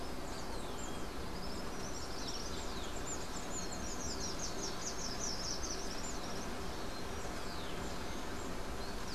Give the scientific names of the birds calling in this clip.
Todirostrum cinereum, Myioborus miniatus